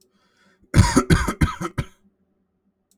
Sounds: Cough